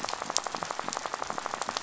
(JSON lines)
{"label": "biophony", "recorder": "SoundTrap 500"}
{"label": "biophony, rattle", "recorder": "SoundTrap 500"}